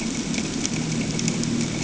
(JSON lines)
{"label": "anthrophony, boat engine", "recorder": "HydroMoth"}